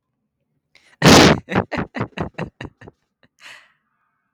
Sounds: Laughter